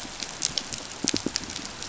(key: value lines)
label: biophony, pulse
recorder: SoundTrap 500